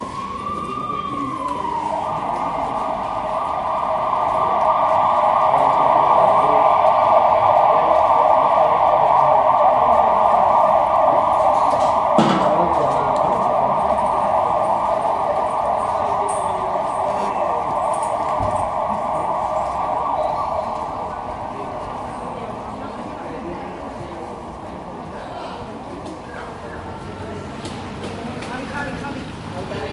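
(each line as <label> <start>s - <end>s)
The siren of an emergency vehicle. 0.0s - 21.4s
People are talking in the background. 0.0s - 29.9s
Crockery rattling. 12.1s - 12.5s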